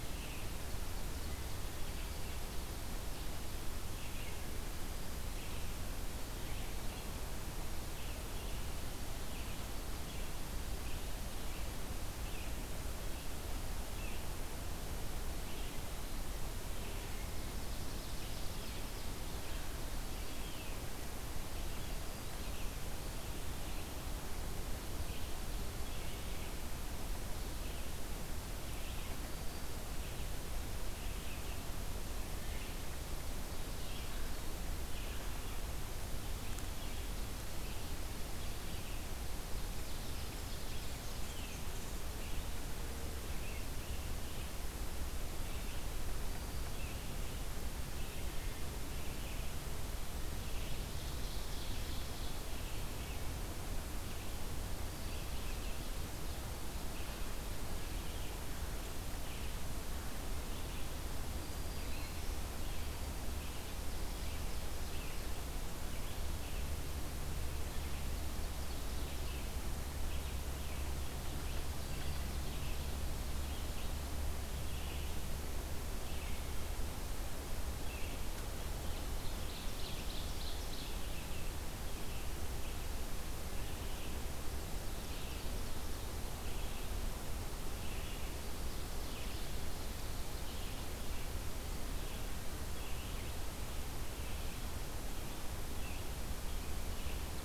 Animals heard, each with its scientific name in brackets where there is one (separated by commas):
Ovenbird (Seiurus aurocapilla), Red-eyed Vireo (Vireo olivaceus), Black-throated Green Warbler (Setophaga virens)